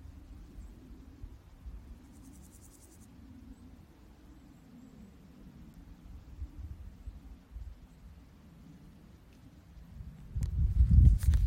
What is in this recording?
Pseudochorthippus parallelus, an orthopteran